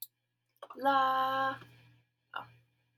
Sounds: Sigh